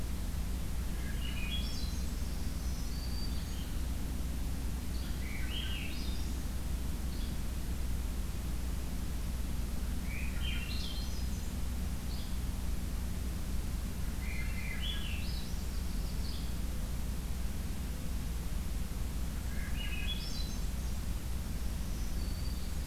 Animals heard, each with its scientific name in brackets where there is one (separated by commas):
Black-throated Green Warbler (Setophaga virens), Swainson's Thrush (Catharus ustulatus), Yellow-bellied Flycatcher (Empidonax flaviventris), Yellow-rumped Warbler (Setophaga coronata)